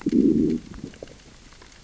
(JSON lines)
{"label": "biophony, growl", "recorder": "SoundTrap 600 or HydroMoth"}